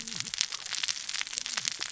{"label": "biophony, cascading saw", "recorder": "SoundTrap 600 or HydroMoth"}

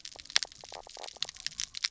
{"label": "biophony, knock croak", "recorder": "SoundTrap 300"}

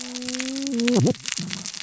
{"label": "biophony, cascading saw", "recorder": "SoundTrap 600 or HydroMoth"}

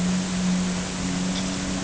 {"label": "anthrophony, boat engine", "recorder": "HydroMoth"}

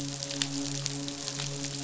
{"label": "biophony, midshipman", "recorder": "SoundTrap 500"}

